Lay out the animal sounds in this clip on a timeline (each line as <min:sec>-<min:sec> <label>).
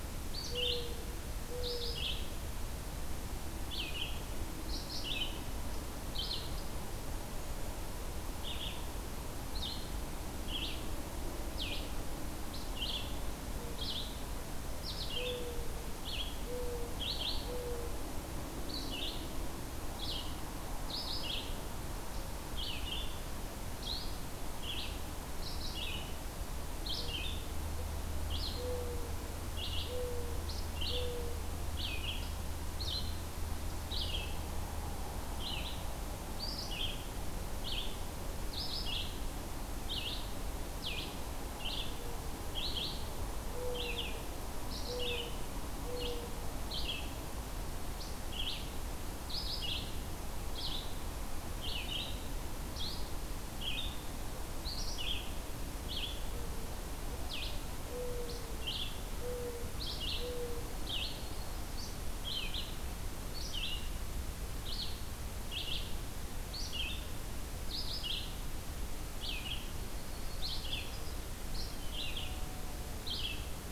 0:00.0-0:02.0 Mourning Dove (Zenaida macroura)
0:00.0-0:49.9 Red-eyed Vireo (Vireo olivaceus)
0:13.5-0:17.9 Mourning Dove (Zenaida macroura)
0:26.9-0:31.5 Mourning Dove (Zenaida macroura)
0:41.8-0:46.5 Mourning Dove (Zenaida macroura)
0:50.4-1:13.7 Red-eyed Vireo (Vireo olivaceus)
0:55.5-1:00.7 Mourning Dove (Zenaida macroura)
1:00.7-1:01.6 Yellow-rumped Warbler (Setophaga coronata)
1:09.8-1:11.2 Yellow-rumped Warbler (Setophaga coronata)